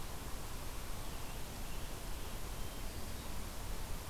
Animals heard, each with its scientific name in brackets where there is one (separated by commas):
Hermit Thrush (Catharus guttatus), Scarlet Tanager (Piranga olivacea)